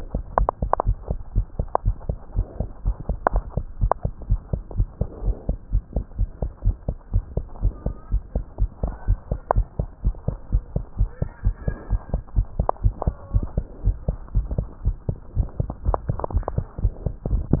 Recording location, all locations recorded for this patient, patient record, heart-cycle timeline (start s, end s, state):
tricuspid valve (TV)
aortic valve (AV)+pulmonary valve (PV)+tricuspid valve (TV)+mitral valve (MV)
#Age: Child
#Sex: Male
#Height: 116.0 cm
#Weight: 20.5 kg
#Pregnancy status: False
#Murmur: Absent
#Murmur locations: nan
#Most audible location: nan
#Systolic murmur timing: nan
#Systolic murmur shape: nan
#Systolic murmur grading: nan
#Systolic murmur pitch: nan
#Systolic murmur quality: nan
#Diastolic murmur timing: nan
#Diastolic murmur shape: nan
#Diastolic murmur grading: nan
#Diastolic murmur pitch: nan
#Diastolic murmur quality: nan
#Outcome: Normal
#Campaign: 2015 screening campaign
0.00	2.06	unannotated
2.06	2.16	S2
2.16	2.34	diastole
2.34	2.46	S1
2.46	2.56	systole
2.56	2.68	S2
2.68	2.84	diastole
2.84	2.96	S1
2.96	3.06	systole
3.06	3.16	S2
3.16	3.32	diastole
3.32	3.44	S1
3.44	3.54	systole
3.54	3.64	S2
3.64	3.80	diastole
3.80	3.92	S1
3.92	4.04	systole
4.04	4.14	S2
4.14	4.30	diastole
4.30	4.42	S1
4.42	4.52	systole
4.52	4.64	S2
4.64	4.76	diastole
4.76	4.88	S1
4.88	4.98	systole
4.98	5.08	S2
5.08	5.24	diastole
5.24	5.36	S1
5.36	5.48	systole
5.48	5.56	S2
5.56	5.72	diastole
5.72	5.84	S1
5.84	5.92	systole
5.92	6.04	S2
6.04	6.18	diastole
6.18	6.30	S1
6.30	6.42	systole
6.42	6.52	S2
6.52	6.66	diastole
6.66	6.78	S1
6.78	6.86	systole
6.86	6.96	S2
6.96	7.12	diastole
7.12	7.24	S1
7.24	7.34	systole
7.34	7.44	S2
7.44	7.62	diastole
7.62	7.74	S1
7.74	7.86	systole
7.86	7.96	S2
7.96	8.12	diastole
8.12	8.22	S1
8.22	8.34	systole
8.34	8.46	S2
8.46	8.60	diastole
8.60	8.70	S1
8.70	8.82	systole
8.82	8.94	S2
8.94	9.06	diastole
9.06	9.18	S1
9.18	9.30	systole
9.30	9.40	S2
9.40	9.54	diastole
9.54	9.66	S1
9.66	9.78	systole
9.78	9.90	S2
9.90	10.04	diastole
10.04	10.14	S1
10.14	10.24	systole
10.24	10.34	S2
10.34	10.48	diastole
10.48	10.62	S1
10.62	10.72	systole
10.72	10.82	S2
10.82	10.98	diastole
10.98	11.08	S1
11.08	11.18	systole
11.18	11.28	S2
11.28	11.44	diastole
11.44	11.54	S1
11.54	11.66	systole
11.66	11.76	S2
11.76	11.90	diastole
11.90	12.02	S1
12.02	12.12	systole
12.12	12.22	S2
12.22	12.36	diastole
12.36	12.46	S1
12.46	12.56	systole
12.56	12.68	S2
12.68	12.82	diastole
12.82	12.96	S1
12.96	13.06	systole
13.06	13.16	S2
13.16	13.32	diastole
13.32	13.46	S1
13.46	13.56	systole
13.56	13.66	S2
13.66	13.84	diastole
13.84	13.98	S1
13.98	14.06	systole
14.06	14.20	S2
14.20	14.34	diastole
14.34	14.48	S1
14.48	14.56	systole
14.56	14.68	S2
14.68	14.84	diastole
14.84	14.98	S1
14.98	15.08	systole
15.08	15.18	S2
15.18	15.36	diastole
15.36	17.60	unannotated